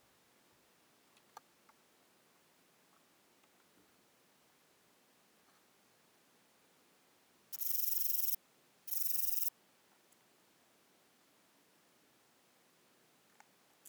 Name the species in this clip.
Rhacocleis lithoscirtetes